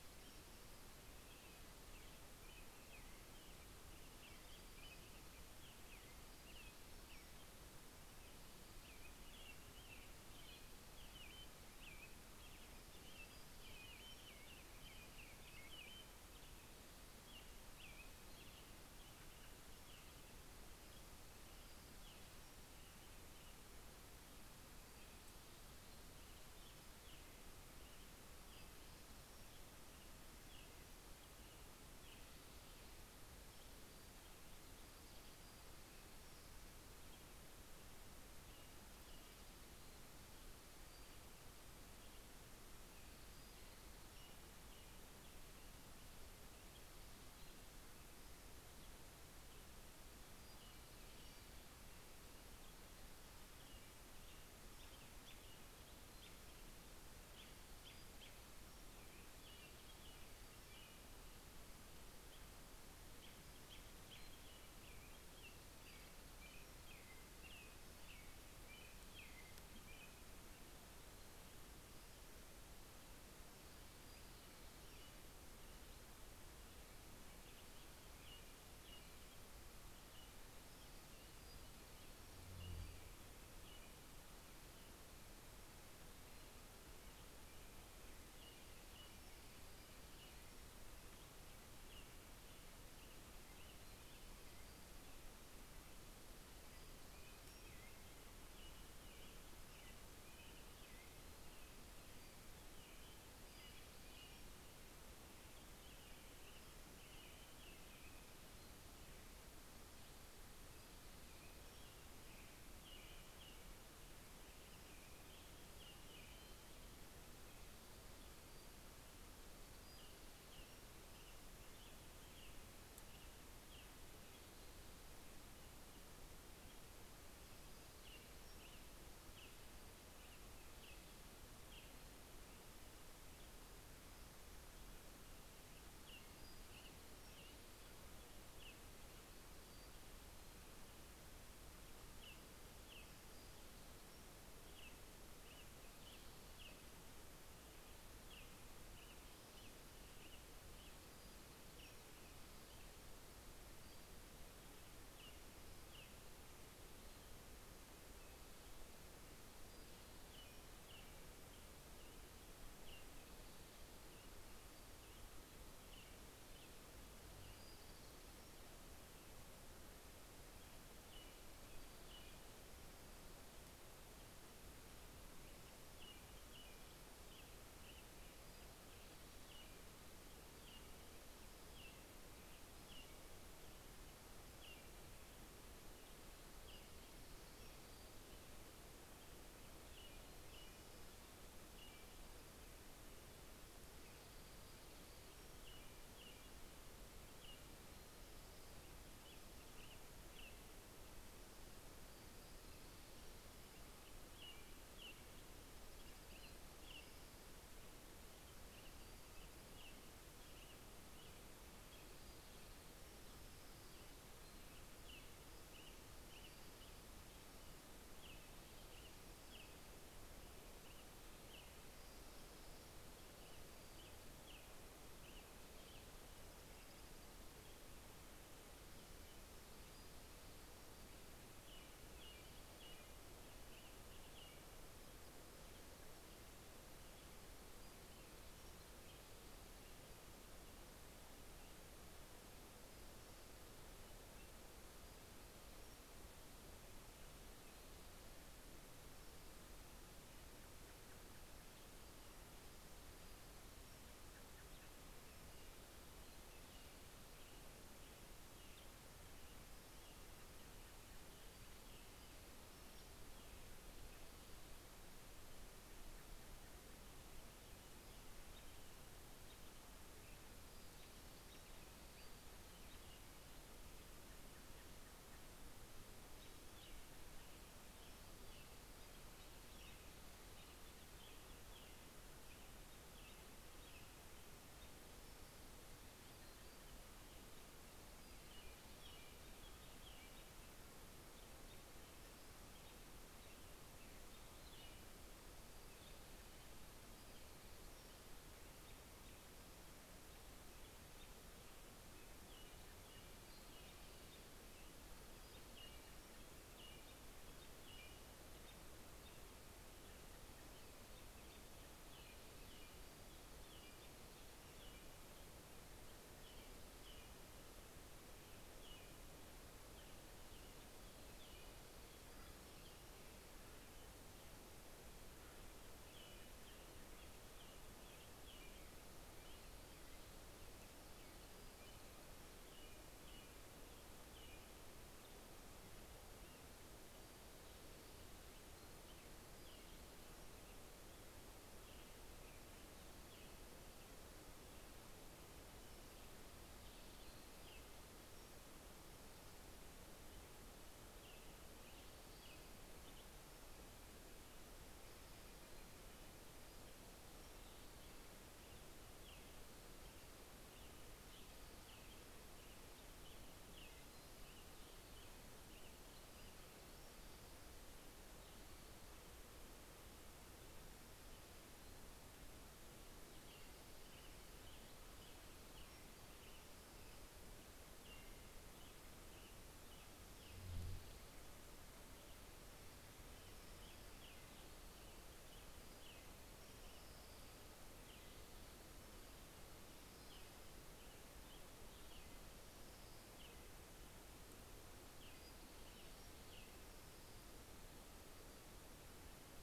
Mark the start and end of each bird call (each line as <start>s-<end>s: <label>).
0.0s-1.7s: Pacific-slope Flycatcher (Empidonax difficilis)
1.0s-7.8s: American Robin (Turdus migratorius)
5.7s-7.9s: Pacific-slope Flycatcher (Empidonax difficilis)
8.4s-23.7s: American Robin (Turdus migratorius)
12.9s-14.7s: Pacific-slope Flycatcher (Empidonax difficilis)
18.6s-20.8s: Common Raven (Corvus corax)
21.3s-23.0s: Pacific-slope Flycatcher (Empidonax difficilis)
24.9s-38.0s: American Robin (Turdus migratorius)
28.2s-30.1s: Pacific-slope Flycatcher (Empidonax difficilis)
33.1s-37.1s: Pacific-slope Flycatcher (Empidonax difficilis)
38.3s-48.4s: American Robin (Turdus migratorius)
40.3s-44.9s: Pacific-slope Flycatcher (Empidonax difficilis)
50.1s-52.1s: Pacific-slope Flycatcher (Empidonax difficilis)
53.5s-61.2s: American Robin (Turdus migratorius)
57.1s-59.9s: Pacific-slope Flycatcher (Empidonax difficilis)
62.5s-70.7s: American Robin (Turdus migratorius)
65.4s-67.2s: Pacific-slope Flycatcher (Empidonax difficilis)
73.7s-75.5s: Pacific-slope Flycatcher (Empidonax difficilis)
74.0s-84.6s: American Robin (Turdus migratorius)
80.8s-83.5s: Pacific-slope Flycatcher (Empidonax difficilis)
87.3s-95.8s: American Robin (Turdus migratorius)
88.7s-91.2s: Pacific-slope Flycatcher (Empidonax difficilis)
95.8s-99.2s: Pacific-slope Flycatcher (Empidonax difficilis)
97.1s-109.0s: American Robin (Turdus migratorius)
101.7s-105.2s: Pacific-slope Flycatcher (Empidonax difficilis)
110.2s-112.8s: Pacific-slope Flycatcher (Empidonax difficilis)
110.8s-117.0s: American Robin (Turdus migratorius)
116.7s-121.7s: Pacific-slope Flycatcher (Empidonax difficilis)
119.6s-124.7s: American Robin (Turdus migratorius)
126.9s-132.8s: American Robin (Turdus migratorius)
127.1s-129.0s: Pacific-slope Flycatcher (Empidonax difficilis)
135.3s-139.2s: American Robin (Turdus migratorius)
136.1s-138.1s: Pacific-slope Flycatcher (Empidonax difficilis)
141.9s-153.3s: American Robin (Turdus migratorius)
142.5s-144.6s: Pacific-slope Flycatcher (Empidonax difficilis)
150.9s-154.6s: Pacific-slope Flycatcher (Empidonax difficilis)
154.9s-156.5s: American Robin (Turdus migratorius)
159.1s-161.0s: Pacific-slope Flycatcher (Empidonax difficilis)
160.0s-168.8s: American Robin (Turdus migratorius)
167.3s-168.6s: Dark-eyed Junco (Junco hyemalis)
167.7s-169.5s: Pacific-slope Flycatcher (Empidonax difficilis)
170.4s-173.2s: American Robin (Turdus migratorius)
175.4s-192.5s: American Robin (Turdus migratorius)
178.0s-179.0s: Pacific-slope Flycatcher (Empidonax difficilis)
186.4s-188.5s: Pacific-slope Flycatcher (Empidonax difficilis)
194.3s-195.9s: Pacific-slope Flycatcher (Empidonax difficilis)
194.3s-201.3s: American Robin (Turdus migratorius)
201.7s-204.0s: Pacific-slope Flycatcher (Empidonax difficilis)
203.5s-213.5s: American Robin (Turdus migratorius)
211.7s-213.3s: Pacific-slope Flycatcher (Empidonax difficilis)
212.8s-214.4s: Orange-crowned Warbler (Leiothlypis celata)
214.4s-222.2s: American Robin (Turdus migratorius)
216.1s-217.1s: Pacific-slope Flycatcher (Empidonax difficilis)
222.9s-226.9s: American Robin (Turdus migratorius)
226.1s-227.6s: Orange-crowned Warbler (Leiothlypis celata)
229.9s-231.7s: Pacific-slope Flycatcher (Empidonax difficilis)
230.9s-235.1s: American Robin (Turdus migratorius)
236.0s-242.1s: American Robin (Turdus migratorius)
237.4s-239.1s: Pacific-slope Flycatcher (Empidonax difficilis)
245.3s-246.9s: Pacific-slope Flycatcher (Empidonax difficilis)
250.4s-251.8s: American Robin (Turdus migratorius)
251.8s-254.3s: Pacific-slope Flycatcher (Empidonax difficilis)
253.8s-264.4s: American Robin (Turdus migratorius)
260.9s-263.6s: Pacific-slope Flycatcher (Empidonax difficilis)
265.3s-267.0s: American Robin (Turdus migratorius)
267.6s-270.6s: American Robin (Turdus migratorius)
270.4s-272.9s: Pacific-slope Flycatcher (Empidonax difficilis)
271.0s-273.5s: American Robin (Turdus migratorius)
273.9s-275.5s: American Robin (Turdus migratorius)
276.0s-285.1s: American Robin (Turdus migratorius)
277.4s-280.2s: Pacific-slope Flycatcher (Empidonax difficilis)
284.8s-289.6s: Pacific-slope Flycatcher (Empidonax difficilis)
288.2s-295.4s: American Robin (Turdus migratorius)
296.5s-298.5s: Pacific-slope Flycatcher (Empidonax difficilis)
298.8s-299.5s: American Robin (Turdus migratorius)
300.4s-309.5s: American Robin (Turdus migratorius)
302.6s-307.0s: Pacific-slope Flycatcher (Empidonax difficilis)
309.8s-310.9s: American Robin (Turdus migratorius)
311.2s-324.5s: American Robin (Turdus migratorius)
312.4s-315.5s: Pacific-slope Flycatcher (Empidonax difficilis)
320.6s-323.7s: Pacific-slope Flycatcher (Empidonax difficilis)
322.0s-322.9s: Acorn Woodpecker (Melanerpes formicivorus)
324.9s-326.0s: Acorn Woodpecker (Melanerpes formicivorus)
325.8s-336.8s: American Robin (Turdus migratorius)
331.0s-333.0s: Pacific-slope Flycatcher (Empidonax difficilis)
338.7s-348.9s: American Robin (Turdus migratorius)
339.2s-341.2s: Pacific-slope Flycatcher (Empidonax difficilis)
347.1s-348.7s: Pacific-slope Flycatcher (Empidonax difficilis)
350.9s-353.6s: American Robin (Turdus migratorius)
351.9s-354.3s: Pacific-slope Flycatcher (Empidonax difficilis)
354.8s-356.8s: Steller's Jay (Cyanocitta stelleri)
356.2s-358.1s: Pacific-slope Flycatcher (Empidonax difficilis)
358.1s-367.0s: American Robin (Turdus migratorius)
365.7s-368.0s: Pacific-slope Flycatcher (Empidonax difficilis)
373.1s-380.7s: American Robin (Turdus migratorius)
374.5s-377.2s: Pacific-slope Flycatcher (Empidonax difficilis)
382.8s-397.6s: American Robin (Turdus migratorius)
383.3s-384.7s: Orange-crowned Warbler (Leiothlypis celata)
386.5s-388.0s: Orange-crowned Warbler (Leiothlypis celata)
389.9s-391.0s: Orange-crowned Warbler (Leiothlypis celata)
392.4s-393.7s: Orange-crowned Warbler (Leiothlypis celata)
395.2s-396.7s: Pacific-slope Flycatcher (Empidonax difficilis)